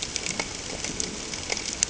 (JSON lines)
{"label": "ambient", "recorder": "HydroMoth"}